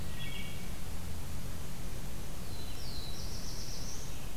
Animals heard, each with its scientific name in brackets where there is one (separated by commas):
Wood Thrush (Hylocichla mustelina), Black-throated Blue Warbler (Setophaga caerulescens)